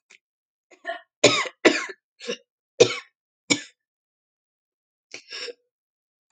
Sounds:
Throat clearing